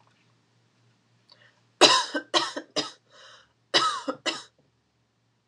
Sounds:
Cough